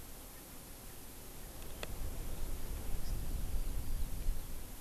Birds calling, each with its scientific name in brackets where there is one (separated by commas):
Hawaii Amakihi (Chlorodrepanis virens)